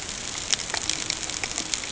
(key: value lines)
label: ambient
recorder: HydroMoth